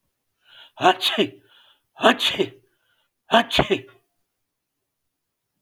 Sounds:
Sneeze